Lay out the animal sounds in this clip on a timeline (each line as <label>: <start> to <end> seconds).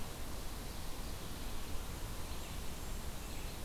Red-eyed Vireo (Vireo olivaceus): 0.0 to 3.6 seconds
Blackburnian Warbler (Setophaga fusca): 2.3 to 3.5 seconds